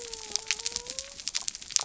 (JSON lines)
{"label": "biophony", "recorder": "SoundTrap 300"}